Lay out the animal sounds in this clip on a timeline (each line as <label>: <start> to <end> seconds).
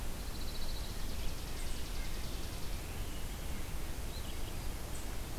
Pine Warbler (Setophaga pinus): 0.0 to 1.2 seconds
Chipping Sparrow (Spizella passerina): 0.8 to 2.8 seconds
Red-breasted Nuthatch (Sitta canadensis): 0.9 to 5.4 seconds
unidentified call: 1.4 to 5.4 seconds
Hermit Thrush (Catharus guttatus): 1.5 to 2.4 seconds
Red-eyed Vireo (Vireo olivaceus): 4.0 to 4.8 seconds